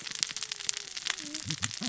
{"label": "biophony, cascading saw", "recorder": "SoundTrap 600 or HydroMoth"}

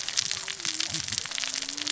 {"label": "biophony, cascading saw", "recorder": "SoundTrap 600 or HydroMoth"}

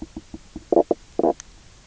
{"label": "biophony, knock croak", "recorder": "SoundTrap 300"}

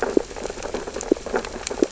{"label": "biophony, sea urchins (Echinidae)", "recorder": "SoundTrap 600 or HydroMoth"}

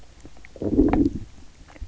{"label": "biophony, low growl", "recorder": "SoundTrap 300"}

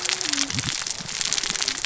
{"label": "biophony, cascading saw", "recorder": "SoundTrap 600 or HydroMoth"}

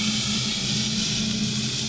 {"label": "anthrophony, boat engine", "recorder": "SoundTrap 500"}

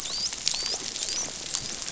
{"label": "biophony, dolphin", "recorder": "SoundTrap 500"}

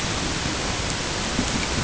{"label": "ambient", "recorder": "HydroMoth"}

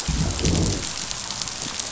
{"label": "biophony, growl", "recorder": "SoundTrap 500"}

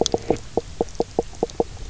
{"label": "biophony, knock croak", "recorder": "SoundTrap 300"}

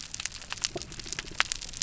{"label": "biophony", "recorder": "SoundTrap 300"}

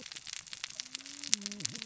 {"label": "biophony, cascading saw", "recorder": "SoundTrap 600 or HydroMoth"}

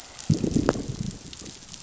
{"label": "biophony, growl", "recorder": "SoundTrap 500"}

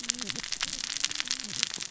{"label": "biophony, cascading saw", "recorder": "SoundTrap 600 or HydroMoth"}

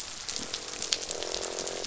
{"label": "biophony, croak", "recorder": "SoundTrap 500"}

